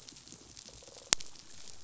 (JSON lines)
{"label": "biophony, pulse", "recorder": "SoundTrap 500"}